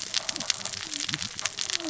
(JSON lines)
{"label": "biophony, cascading saw", "recorder": "SoundTrap 600 or HydroMoth"}